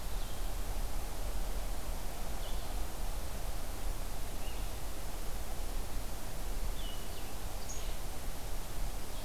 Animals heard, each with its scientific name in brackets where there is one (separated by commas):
Blue-headed Vireo (Vireo solitarius), Black-capped Chickadee (Poecile atricapillus)